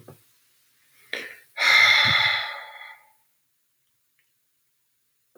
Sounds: Sigh